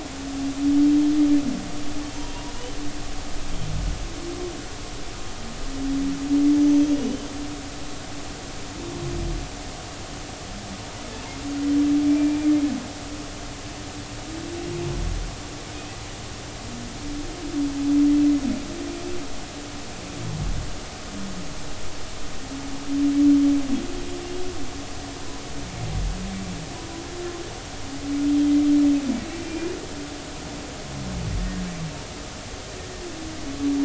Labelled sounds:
6.6	7.0	humpback whale, 5.8 to 6.2 kHz
12.1	12.5	humpback whale, 2.3 to 2.4 kHz
29.3	29.8	humpback whale, 2.3 to 2.5 kHz
31.4	31.6	humpback whale, 1.8 to 1.9 kHz

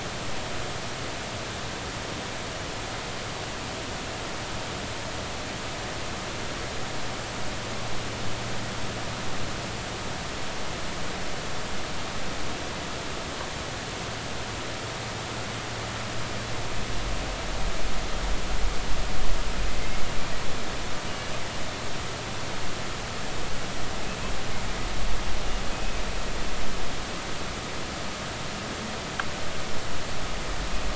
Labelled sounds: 25.7	26.0	humpback whale, 2.5 to 2.6 kHz

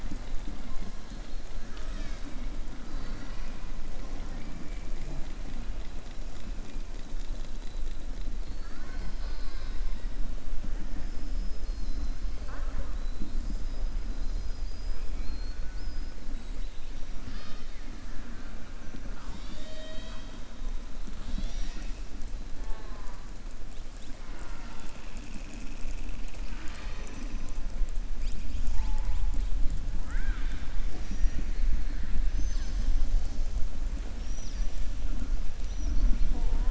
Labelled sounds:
3.9	4.5	killer whale, southern resident, 0.48 to 2.4 kHz
17.1	17.9	killer whale, southern resident, 1.2 to 6.2 kHz
30.0	30.7	killer whale, southern resident, 1.2 to 3.8 kHz

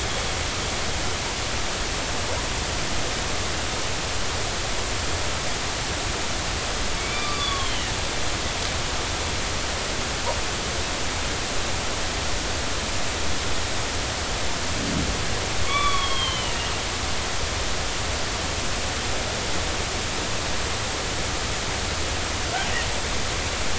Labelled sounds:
7.0	7.9	killer whale, northern resident, G clan, 1.0 to 4.8 kHz
15.7	16.6	killer whale, northern resident, G clan, 0.99 to 4.4 kHz

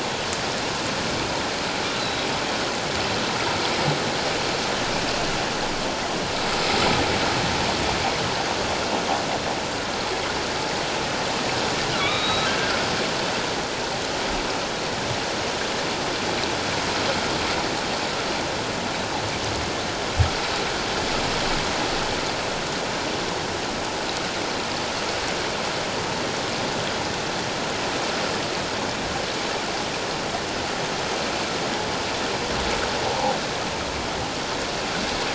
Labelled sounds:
2.0	2.3	humpback whale, 3.8 to 4.1 kHz
12.0	12.7	humpback whale, 1.1 to 4.0 kHz

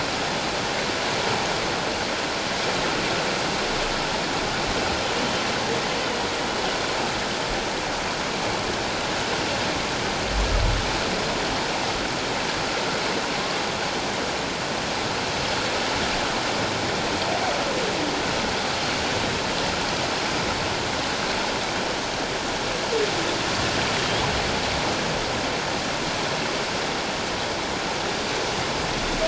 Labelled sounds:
24.0	24.2	humpback whale, 3.1 to 3.5 kHz

